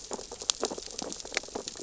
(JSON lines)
{"label": "biophony, sea urchins (Echinidae)", "recorder": "SoundTrap 600 or HydroMoth"}